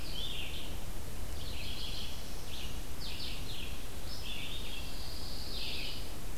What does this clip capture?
Scarlet Tanager, Red-eyed Vireo, Black-throated Blue Warbler, Pine Warbler